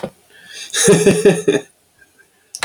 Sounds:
Laughter